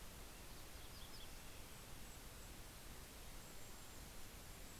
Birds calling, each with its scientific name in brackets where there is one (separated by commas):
Vesper Sparrow (Pooecetes gramineus), Golden-crowned Kinglet (Regulus satrapa)